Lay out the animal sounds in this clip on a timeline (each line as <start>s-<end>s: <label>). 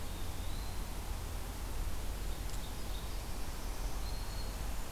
0.0s-0.8s: Eastern Wood-Pewee (Contopus virens)
2.2s-3.3s: Ovenbird (Seiurus aurocapilla)
3.1s-4.9s: Black-throated Green Warbler (Setophaga virens)